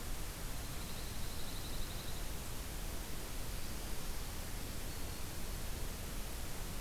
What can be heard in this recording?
Dark-eyed Junco, Black-throated Green Warbler